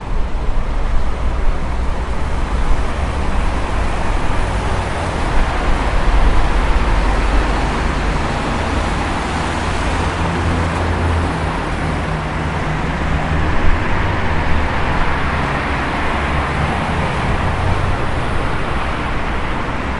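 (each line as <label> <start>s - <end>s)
Cars driving and passing by on a lively city street. 0.0s - 20.0s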